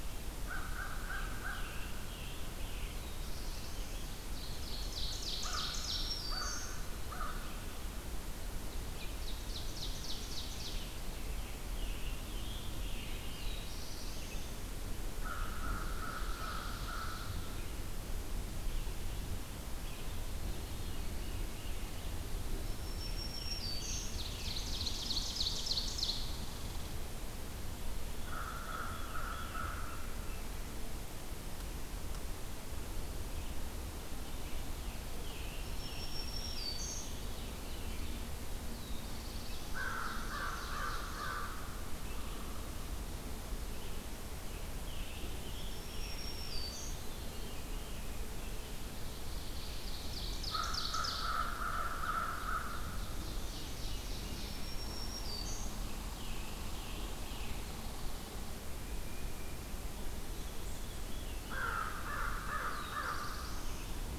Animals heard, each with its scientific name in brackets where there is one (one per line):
Red Squirrel (Tamiasciurus hudsonicus)
Scarlet Tanager (Piranga olivacea)
Veery (Catharus fuscescens)
Tufted Titmouse (Baeolophus bicolor)
Black-throated Green Warbler (Setophaga virens)
Black-throated Blue Warbler (Setophaga caerulescens)
American Crow (Corvus brachyrhynchos)
Ovenbird (Seiurus aurocapilla)